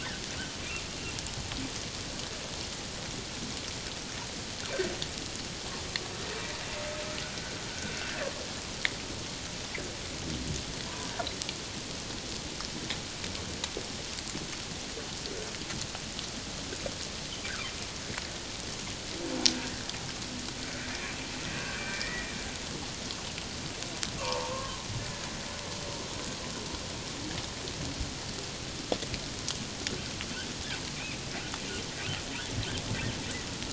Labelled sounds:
7.7	8.0	humpback whale, 1.4 to 1.6 kHz
21.5	22.3	humpback whale, 1.4 to 2.5 kHz
24.2	24.8	humpback whale, 0.84 to 1.2 kHz

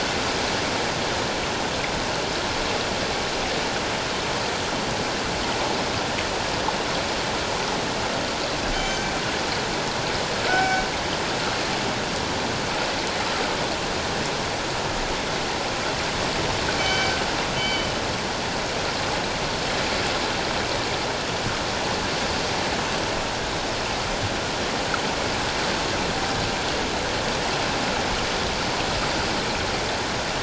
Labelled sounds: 8.7	9.1	killer whale, northern resident, G clan, 2.2 to 6.3 kHz
10.5	10.8	killer whale, northern resident, G clan, 1.4 to 5.4 kHz
16.8	17.9	killer whale, northern resident, G clan, 2.2 to 6.2 kHz

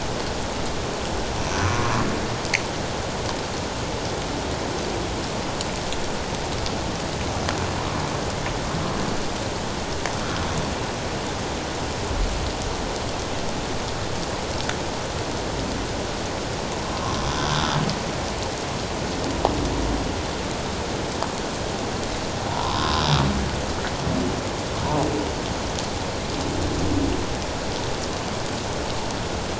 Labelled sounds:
1.6	1.9	humpback whale, 1.0 to 1.3 kHz
17.0	17.3	humpback whale, 0.97 to 1.2 kHz
22.5	23.0	humpback whale, 0.81 to 1.2 kHz

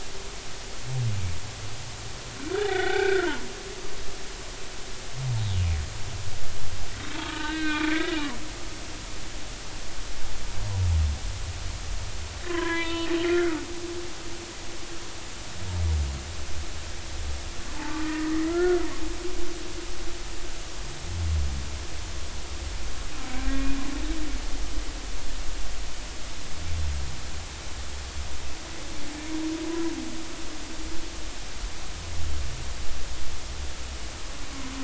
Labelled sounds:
2.6	3.4	humpback whale, 0.80 to 3.6 kHz
7.1	8.2	humpback whale, 0.86 to 4.2 kHz
12.5	13.9	humpback whale, 0.93 to 3.7 kHz
17.8	18.9	humpback whale, 0.83 to 2.0 kHz

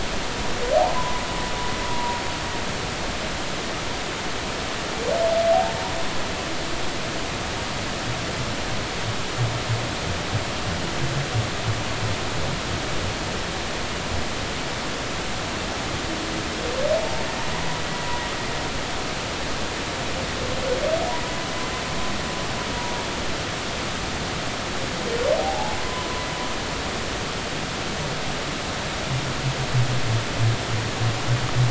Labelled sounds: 1.0	2.2	humpback whale, 0.93 to 1.1 kHz
25.4	25.8	humpback whale, 0.80 to 0.96 kHz

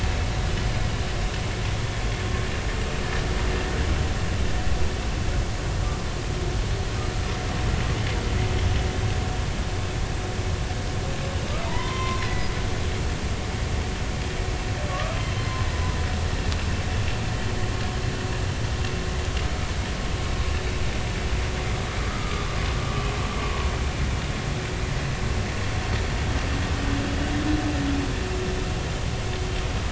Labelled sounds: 11.6	12.5	humpback whale, 0.86 to 3.2 kHz
14.9	15.6	humpback whale, 1.1 to 4.3 kHz
22.1	22.5	humpback whale, 1.1 to 1.3 kHz

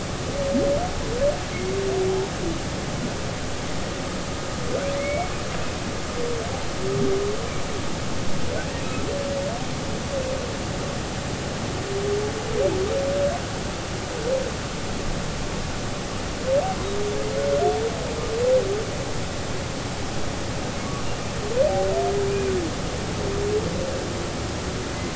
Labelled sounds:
4.9	5.3	humpback whale, 1.9 to 2.3 kHz

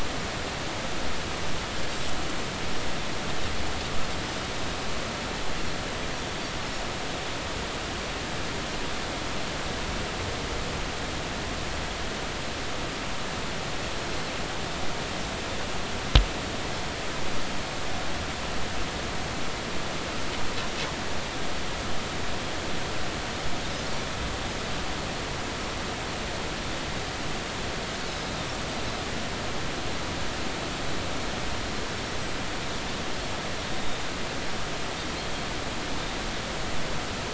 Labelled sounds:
33.7	34.0	Pacific white-sided dolphin, 3.6 to 3.8 kHz

